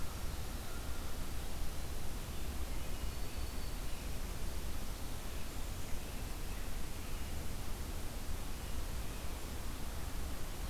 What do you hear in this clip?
Black-throated Green Warbler